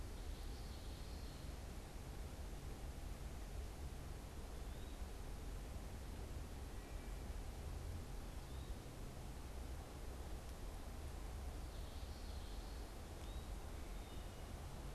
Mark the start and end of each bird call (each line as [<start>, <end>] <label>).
[0.00, 1.60] Common Yellowthroat (Geothlypis trichas)
[4.20, 5.10] Eastern Wood-Pewee (Contopus virens)
[6.50, 7.60] Wood Thrush (Hylocichla mustelina)
[8.10, 8.80] Eastern Wood-Pewee (Contopus virens)
[11.50, 12.90] Common Yellowthroat (Geothlypis trichas)
[12.90, 13.60] Eastern Wood-Pewee (Contopus virens)
[13.90, 14.70] Wood Thrush (Hylocichla mustelina)